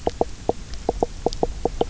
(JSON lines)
{"label": "biophony", "recorder": "SoundTrap 300"}